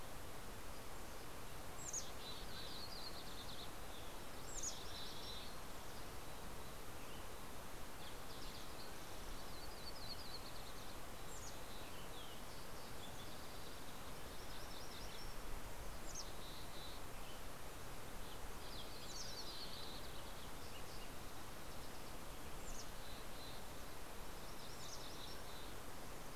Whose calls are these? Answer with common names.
Mountain Chickadee, Mountain Quail, Green-tailed Towhee, Yellow-rumped Warbler